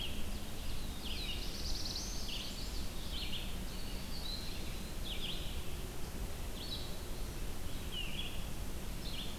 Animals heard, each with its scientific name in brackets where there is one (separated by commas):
Red-eyed Vireo (Vireo olivaceus), Chestnut-sided Warbler (Setophaga pensylvanica), Black-throated Blue Warbler (Setophaga caerulescens)